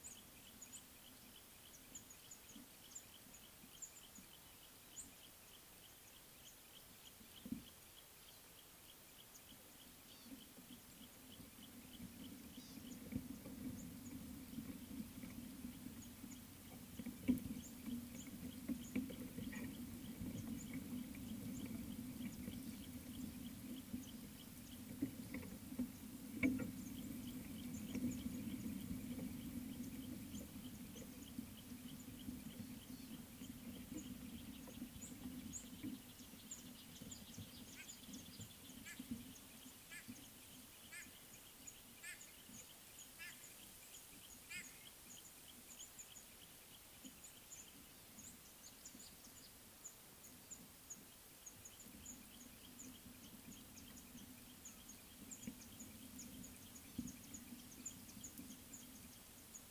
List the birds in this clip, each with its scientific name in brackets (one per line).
White-bellied Go-away-bird (Corythaixoides leucogaster)
Mouse-colored Penduline-Tit (Anthoscopus musculus)